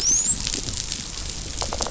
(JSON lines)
{"label": "biophony, dolphin", "recorder": "SoundTrap 500"}